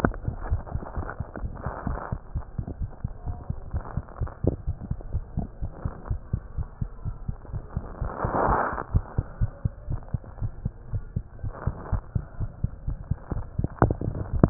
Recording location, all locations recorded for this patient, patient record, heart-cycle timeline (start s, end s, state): tricuspid valve (TV)
aortic valve (AV)+pulmonary valve (PV)+tricuspid valve (TV)+mitral valve (MV)
#Age: Child
#Sex: Male
#Height: 82.0 cm
#Weight: 11.1 kg
#Pregnancy status: False
#Murmur: Absent
#Murmur locations: nan
#Most audible location: nan
#Systolic murmur timing: nan
#Systolic murmur shape: nan
#Systolic murmur grading: nan
#Systolic murmur pitch: nan
#Systolic murmur quality: nan
#Diastolic murmur timing: nan
#Diastolic murmur shape: nan
#Diastolic murmur grading: nan
#Diastolic murmur pitch: nan
#Diastolic murmur quality: nan
#Outcome: Abnormal
#Campaign: 2015 screening campaign
0.00	2.18	unannotated
2.18	2.32	diastole
2.32	2.42	S1
2.42	2.54	systole
2.54	2.64	S2
2.64	2.78	diastole
2.78	2.90	S1
2.90	3.00	systole
3.00	3.12	S2
3.12	3.26	diastole
3.26	3.38	S1
3.38	3.46	systole
3.46	3.58	S2
3.58	3.72	diastole
3.72	3.84	S1
3.84	3.94	systole
3.94	4.04	S2
4.04	4.18	diastole
4.18	4.32	S1
4.32	4.44	systole
4.44	4.54	S2
4.54	4.66	diastole
4.66	4.76	S1
4.76	4.88	systole
4.88	4.98	S2
4.98	5.12	diastole
5.12	5.24	S1
5.24	5.34	systole
5.34	5.46	S2
5.46	5.60	diastole
5.60	5.70	S1
5.70	5.82	systole
5.82	5.92	S2
5.92	6.08	diastole
6.08	6.22	S1
6.22	6.32	systole
6.32	6.44	S2
6.44	6.56	diastole
6.56	6.68	S1
6.68	6.80	systole
6.80	6.90	S2
6.90	7.06	diastole
7.06	7.16	S1
7.16	7.26	systole
7.26	7.36	S2
7.36	7.52	diastole
7.52	7.64	S1
7.64	7.74	systole
7.74	7.84	S2
7.84	8.00	diastole
8.00	8.14	S1
8.14	8.22	systole
8.22	8.32	S2
8.32	8.44	diastole
8.44	8.58	S1
8.58	8.68	systole
8.68	8.78	S2
8.78	8.91	diastole
8.91	9.04	S1
9.04	9.14	systole
9.14	9.26	S2
9.26	9.40	diastole
9.40	9.52	S1
9.52	9.64	systole
9.64	9.74	S2
9.74	9.90	diastole
9.90	10.02	S1
10.02	10.10	systole
10.10	10.22	S2
10.22	10.40	diastole
10.40	10.52	S1
10.52	10.64	systole
10.64	10.74	S2
10.74	10.92	diastole
10.92	11.04	S1
11.04	11.12	systole
11.12	11.24	S2
11.24	11.42	diastole
11.42	11.54	S1
11.54	11.62	systole
11.62	11.74	S2
11.74	11.90	diastole
11.90	12.04	S1
12.04	12.14	systole
12.14	12.28	S2
12.28	12.40	diastole
12.40	12.50	S1
12.50	12.60	systole
12.60	12.72	S2
12.72	12.86	diastole
12.86	13.00	S1
13.00	13.10	systole
13.10	13.20	S2
13.20	13.32	diastole
13.32	14.50	unannotated